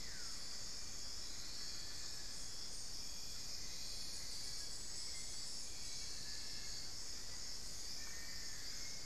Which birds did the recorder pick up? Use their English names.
unidentified bird, Long-billed Woodcreeper, Hauxwell's Thrush